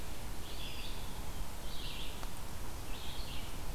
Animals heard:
Eastern Wood-Pewee (Contopus virens)
Red-eyed Vireo (Vireo olivaceus)

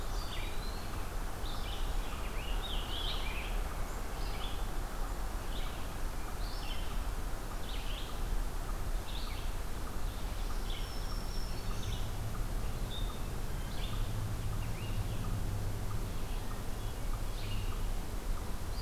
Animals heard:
Black-throated Green Warbler (Setophaga virens)
Scarlet Tanager (Piranga olivacea)
Red-eyed Vireo (Vireo olivaceus)
Eastern Wood-Pewee (Contopus virens)

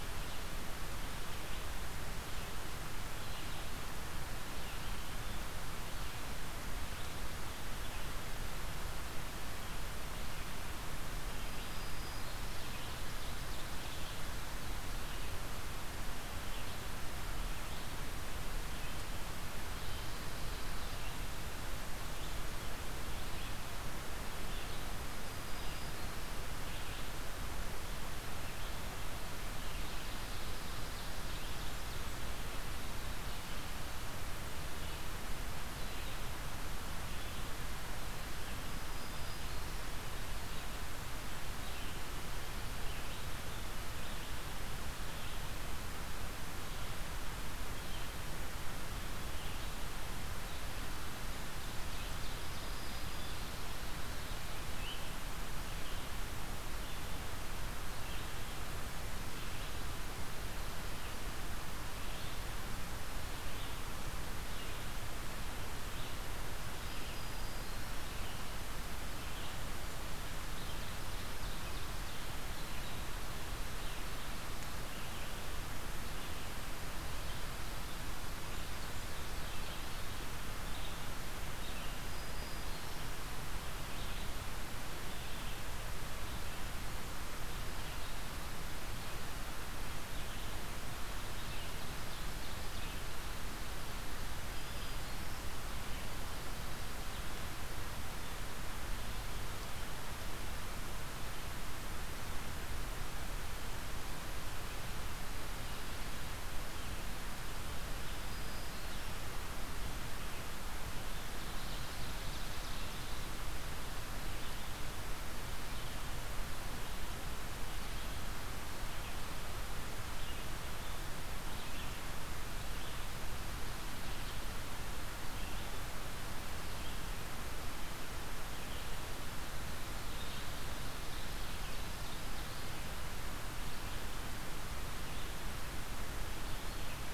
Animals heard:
Black-throated Green Warbler (Setophaga virens)
Red-eyed Vireo (Vireo olivaceus)
Ovenbird (Seiurus aurocapilla)

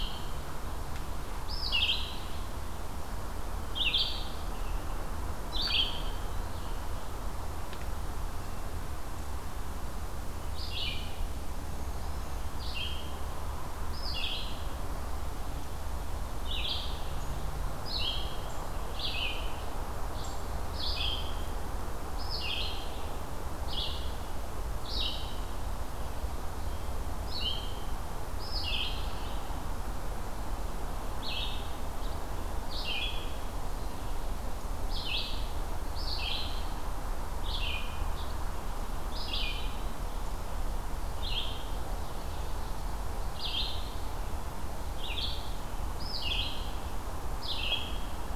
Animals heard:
Black-throated Green Warbler (Setophaga virens)
Red-eyed Vireo (Vireo olivaceus)

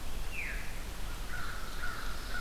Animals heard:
American Crow (Corvus brachyrhynchos)
Ovenbird (Seiurus aurocapilla)
Veery (Catharus fuscescens)

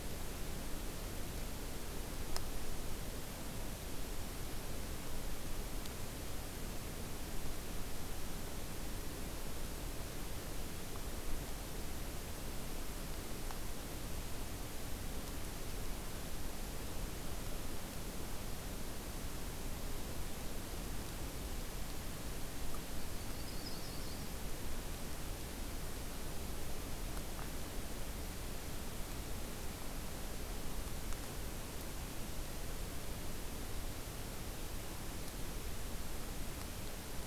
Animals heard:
Yellow-rumped Warbler (Setophaga coronata)

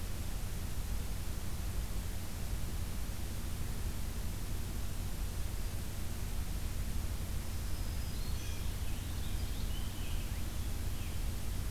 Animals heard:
Purple Finch (Haemorhous purpureus)
Black-throated Green Warbler (Setophaga virens)

